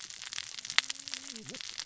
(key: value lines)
label: biophony, cascading saw
recorder: SoundTrap 600 or HydroMoth